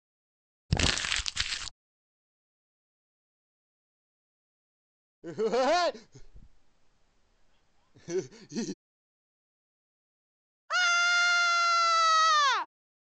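First, there is crumpling. Then laughter can be heard. After that, someone screams.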